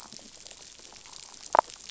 {"label": "biophony, damselfish", "recorder": "SoundTrap 500"}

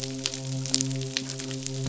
{"label": "biophony, midshipman", "recorder": "SoundTrap 500"}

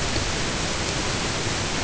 {"label": "ambient", "recorder": "HydroMoth"}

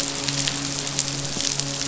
{"label": "biophony, midshipman", "recorder": "SoundTrap 500"}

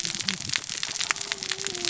{"label": "biophony, cascading saw", "recorder": "SoundTrap 600 or HydroMoth"}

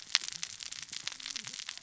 {"label": "biophony, cascading saw", "recorder": "SoundTrap 600 or HydroMoth"}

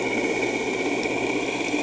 {"label": "anthrophony, boat engine", "recorder": "HydroMoth"}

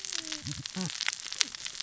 {"label": "biophony, cascading saw", "recorder": "SoundTrap 600 or HydroMoth"}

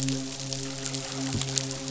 {"label": "biophony, midshipman", "recorder": "SoundTrap 500"}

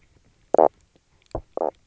{"label": "biophony, knock croak", "recorder": "SoundTrap 300"}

